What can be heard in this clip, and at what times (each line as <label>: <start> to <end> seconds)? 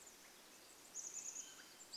Chestnut-backed Chickadee call: 0 to 2 seconds
Pacific Wren song: 0 to 2 seconds
Swainson's Thrush call: 0 to 2 seconds